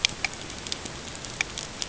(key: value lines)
label: ambient
recorder: HydroMoth